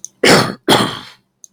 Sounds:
Throat clearing